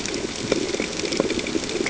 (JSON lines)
{"label": "ambient", "recorder": "HydroMoth"}